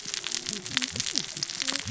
{"label": "biophony, cascading saw", "recorder": "SoundTrap 600 or HydroMoth"}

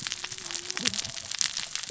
{"label": "biophony, cascading saw", "recorder": "SoundTrap 600 or HydroMoth"}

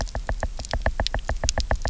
{"label": "biophony, knock", "recorder": "SoundTrap 300"}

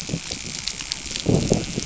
{"label": "biophony, dolphin", "recorder": "SoundTrap 500"}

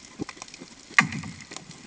{"label": "anthrophony, bomb", "recorder": "HydroMoth"}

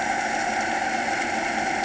{"label": "anthrophony, boat engine", "recorder": "HydroMoth"}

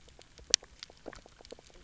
{"label": "biophony, knock croak", "recorder": "SoundTrap 300"}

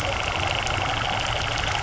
{"label": "anthrophony, boat engine", "recorder": "SoundTrap 300"}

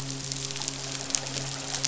{"label": "biophony, midshipman", "recorder": "SoundTrap 500"}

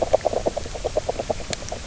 {"label": "biophony, knock croak", "recorder": "SoundTrap 300"}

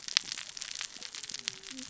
{"label": "biophony, cascading saw", "recorder": "SoundTrap 600 or HydroMoth"}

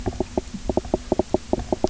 {"label": "biophony, knock croak", "recorder": "SoundTrap 300"}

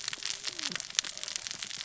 {"label": "biophony, cascading saw", "recorder": "SoundTrap 600 or HydroMoth"}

